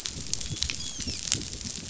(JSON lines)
{"label": "biophony, dolphin", "recorder": "SoundTrap 500"}